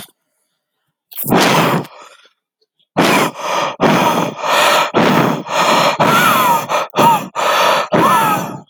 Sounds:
Throat clearing